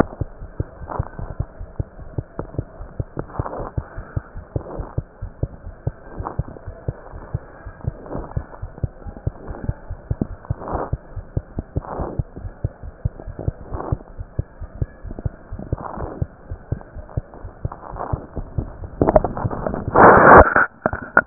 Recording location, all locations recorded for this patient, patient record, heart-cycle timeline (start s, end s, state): aortic valve (AV)
aortic valve (AV)+pulmonary valve (PV)
#Age: Infant
#Sex: Female
#Height: 62.0 cm
#Weight: 6.2 kg
#Pregnancy status: False
#Murmur: Present
#Murmur locations: pulmonary valve (PV)
#Most audible location: pulmonary valve (PV)
#Systolic murmur timing: Early-systolic
#Systolic murmur shape: Plateau
#Systolic murmur grading: I/VI
#Systolic murmur pitch: Low
#Systolic murmur quality: Blowing
#Diastolic murmur timing: nan
#Diastolic murmur shape: nan
#Diastolic murmur grading: nan
#Diastolic murmur pitch: nan
#Diastolic murmur quality: nan
#Outcome: Normal
#Campaign: 2015 screening campaign
0.00	1.85	unannotated
1.85	1.96	diastole
1.96	2.08	S1
2.08	2.16	systole
2.16	2.26	S2
2.26	2.37	diastole
2.37	2.46	S1
2.46	2.55	systole
2.55	2.62	S2
2.62	2.78	diastole
2.78	2.90	S1
2.90	2.98	systole
2.98	3.08	S2
3.08	3.16	diastole
3.16	3.24	S1
3.24	3.37	systole
3.37	3.43	S2
3.43	3.60	diastole
3.60	3.70	S1
3.70	3.76	systole
3.76	3.86	S2
3.86	3.96	diastole
3.96	4.03	S1
4.03	4.15	systole
4.15	4.21	S2
4.21	4.35	diastole
4.35	4.45	S1
4.45	4.54	systole
4.54	4.63	S2
4.63	4.78	diastole
4.78	4.84	S1
4.84	4.95	systole
4.95	5.03	S2
5.03	5.20	diastole
5.20	5.30	S1
5.30	5.38	systole
5.38	5.52	S2
5.52	5.64	diastole
5.64	5.72	S1
5.72	5.85	systole
5.85	5.91	S2
5.91	6.16	diastole
6.16	6.28	S1
6.28	6.34	systole
6.34	6.44	S2
6.44	6.66	diastole
6.66	6.73	S1
6.73	6.86	systole
6.86	6.93	S2
6.93	7.12	diastole
7.12	7.24	S1
7.24	7.32	systole
7.32	7.44	S2
7.44	7.64	diastole
7.64	7.72	S1
7.72	7.85	systole
7.85	7.92	S2
7.92	8.12	diastole
8.12	8.26	S1
8.26	8.34	systole
8.34	8.46	S2
8.46	8.61	diastole
8.61	8.68	S1
8.68	8.82	systole
8.82	8.88	S2
8.88	9.04	diastole
9.04	9.14	S1
9.14	9.22	systole
9.22	9.36	S2
9.36	9.48	diastole
9.48	9.55	S1
9.55	21.26	unannotated